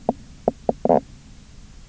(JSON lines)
{"label": "biophony, knock croak", "recorder": "SoundTrap 300"}